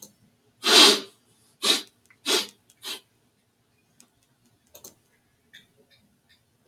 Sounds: Sniff